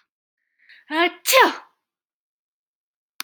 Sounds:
Sneeze